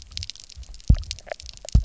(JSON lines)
{"label": "biophony, double pulse", "recorder": "SoundTrap 300"}